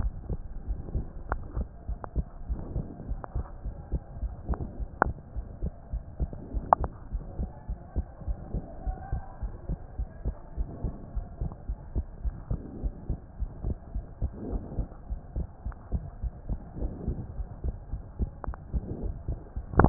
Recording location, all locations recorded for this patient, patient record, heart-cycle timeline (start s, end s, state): pulmonary valve (PV)
aortic valve (AV)+pulmonary valve (PV)+tricuspid valve (TV)+mitral valve (MV)
#Age: Child
#Sex: Female
#Height: 121.0 cm
#Weight: 23.7 kg
#Pregnancy status: False
#Murmur: Present
#Murmur locations: aortic valve (AV)
#Most audible location: aortic valve (AV)
#Systolic murmur timing: Holosystolic
#Systolic murmur shape: Plateau
#Systolic murmur grading: I/VI
#Systolic murmur pitch: Low
#Systolic murmur quality: Blowing
#Diastolic murmur timing: nan
#Diastolic murmur shape: nan
#Diastolic murmur grading: nan
#Diastolic murmur pitch: nan
#Diastolic murmur quality: nan
#Outcome: Abnormal
#Campaign: 2015 screening campaign
0.00	0.40	unannotated
0.40	0.62	diastole
0.62	0.78	S1
0.78	0.92	systole
0.92	1.06	S2
1.06	1.28	diastole
1.28	1.42	S1
1.42	1.54	systole
1.54	1.68	S2
1.68	1.88	diastole
1.88	1.98	S1
1.98	2.14	systole
2.14	2.26	S2
2.26	2.48	diastole
2.48	2.58	S1
2.58	2.72	systole
2.72	2.86	S2
2.86	3.08	diastole
3.08	3.20	S1
3.20	3.34	systole
3.34	3.46	S2
3.46	3.64	diastole
3.64	3.74	S1
3.74	3.90	systole
3.90	4.02	S2
4.02	4.20	diastole
4.20	4.34	S1
4.34	4.48	systole
4.48	4.58	S2
4.58	4.78	diastole
4.78	4.88	S1
4.88	5.02	systole
5.02	5.14	S2
5.14	5.36	diastole
5.36	5.46	S1
5.46	5.60	systole
5.60	5.74	S2
5.74	5.92	diastole
5.92	6.04	S1
6.04	6.20	systole
6.20	6.30	S2
6.30	6.50	diastole
6.50	6.64	S1
6.64	6.78	systole
6.78	6.92	S2
6.92	7.12	diastole
7.12	7.26	S1
7.26	7.40	systole
7.40	7.50	S2
7.50	7.68	diastole
7.68	7.78	S1
7.78	7.96	systole
7.96	8.06	S2
8.06	8.26	diastole
8.26	8.38	S1
8.38	8.52	systole
8.52	8.64	S2
8.64	8.86	diastole
8.86	8.96	S1
8.96	9.10	systole
9.10	9.24	S2
9.24	9.42	diastole
9.42	9.52	S1
9.52	9.68	systole
9.68	9.78	S2
9.78	9.98	diastole
9.98	10.08	S1
10.08	10.24	systole
10.24	10.36	S2
10.36	10.58	diastole
10.58	10.68	S1
10.68	10.82	systole
10.82	10.92	S2
10.92	11.14	diastole
11.14	11.26	S1
11.26	11.40	systole
11.40	11.50	S2
11.50	11.68	diastole
11.68	11.78	S1
11.78	11.94	systole
11.94	12.06	S2
12.06	12.24	diastole
12.24	12.38	S1
12.38	12.50	systole
12.50	12.60	S2
12.60	12.82	diastole
12.82	12.94	S1
12.94	13.08	systole
13.08	13.22	S2
13.22	13.40	diastole
13.40	13.54	S1
13.54	13.66	systole
13.66	13.78	S2
13.78	13.94	diastole
13.94	14.06	S1
14.06	14.20	systole
14.20	14.32	S2
14.32	14.48	diastole
14.48	14.62	S1
14.62	14.74	systole
14.74	14.88	S2
14.88	15.10	diastole
15.10	15.20	S1
15.20	15.34	systole
15.34	15.46	S2
15.46	15.64	diastole
15.64	15.74	S1
15.74	15.92	systole
15.92	16.04	S2
16.04	16.22	diastole
16.22	16.34	S1
16.34	16.48	systole
16.48	16.60	S2
16.60	16.78	diastole
16.78	16.92	S1
16.92	17.04	systole
17.04	17.16	S2
17.16	17.34	diastole
17.34	17.48	S1
17.48	17.64	systole
17.64	17.78	S2
17.78	17.92	diastole
17.92	18.04	S1
18.04	18.20	systole
18.20	18.32	S2
18.32	18.48	diastole
18.48	18.58	S1
18.58	18.72	systole
18.72	18.85	S2
18.85	19.03	diastole
19.03	19.89	unannotated